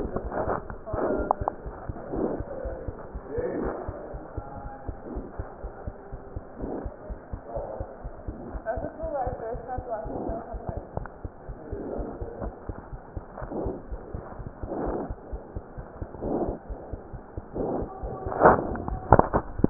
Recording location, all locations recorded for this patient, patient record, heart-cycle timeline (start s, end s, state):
aortic valve (AV)
aortic valve (AV)+pulmonary valve (PV)+tricuspid valve (TV)+mitral valve (MV)
#Age: Infant
#Sex: Male
#Height: 72.0 cm
#Weight: 8.3 kg
#Pregnancy status: False
#Murmur: Absent
#Murmur locations: nan
#Most audible location: nan
#Systolic murmur timing: nan
#Systolic murmur shape: nan
#Systolic murmur grading: nan
#Systolic murmur pitch: nan
#Systolic murmur quality: nan
#Diastolic murmur timing: nan
#Diastolic murmur shape: nan
#Diastolic murmur grading: nan
#Diastolic murmur pitch: nan
#Diastolic murmur quality: nan
#Outcome: Abnormal
#Campaign: 2015 screening campaign
0.00	3.99	unannotated
3.99	4.13	diastole
4.13	4.19	S1
4.19	4.36	systole
4.36	4.42	S2
4.42	4.63	diastole
4.63	4.71	S1
4.71	4.87	systole
4.87	4.96	S2
4.96	5.12	diastole
5.12	5.24	S1
5.24	5.38	systole
5.38	5.45	S2
5.45	5.62	diastole
5.62	5.72	S1
5.72	5.86	systole
5.86	5.94	S2
5.94	6.11	diastole
6.11	6.19	S1
6.19	6.31	systole
6.31	6.41	S2
6.41	6.58	diastole
6.58	6.68	S1
6.68	6.83	systole
6.83	6.90	S2
6.90	7.08	diastole
7.08	7.16	S1
7.16	7.31	systole
7.31	7.38	S2
7.38	7.55	diastole
7.55	7.62	S1
7.62	7.78	systole
7.78	7.85	S2
7.85	8.04	diastole
8.04	8.11	S1
8.11	8.25	systole
8.25	8.33	S2
8.33	8.54	diastole
8.54	19.70	unannotated